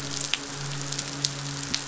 {"label": "biophony, midshipman", "recorder": "SoundTrap 500"}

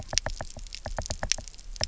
{"label": "biophony, knock", "recorder": "SoundTrap 300"}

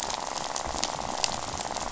{"label": "biophony, rattle", "recorder": "SoundTrap 500"}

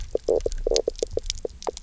{"label": "biophony, knock croak", "recorder": "SoundTrap 300"}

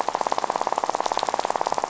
{"label": "biophony, rattle", "recorder": "SoundTrap 500"}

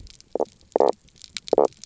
{"label": "biophony, knock croak", "recorder": "SoundTrap 300"}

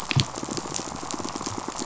{"label": "biophony, pulse", "recorder": "SoundTrap 500"}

